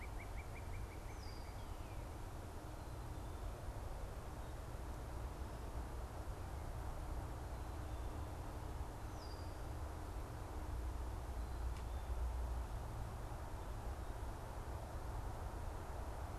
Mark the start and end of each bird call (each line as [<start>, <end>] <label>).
[0.00, 2.11] Northern Cardinal (Cardinalis cardinalis)
[1.01, 1.71] Red-winged Blackbird (Agelaius phoeniceus)